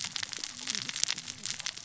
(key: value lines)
label: biophony, cascading saw
recorder: SoundTrap 600 or HydroMoth